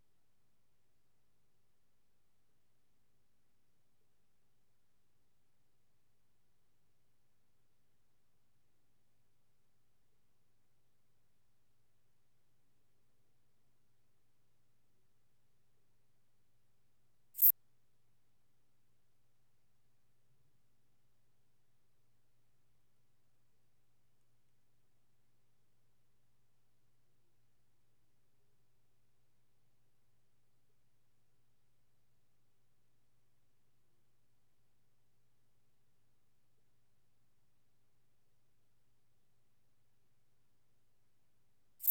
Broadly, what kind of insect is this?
orthopteran